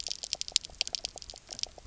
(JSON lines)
{"label": "biophony, pulse", "recorder": "SoundTrap 300"}